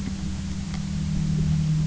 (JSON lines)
{"label": "anthrophony, boat engine", "recorder": "SoundTrap 300"}